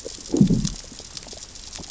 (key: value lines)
label: biophony, growl
recorder: SoundTrap 600 or HydroMoth